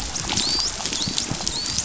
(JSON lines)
{"label": "biophony, dolphin", "recorder": "SoundTrap 500"}